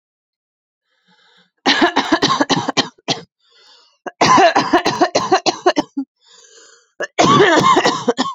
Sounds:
Cough